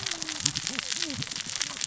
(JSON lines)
{"label": "biophony, cascading saw", "recorder": "SoundTrap 600 or HydroMoth"}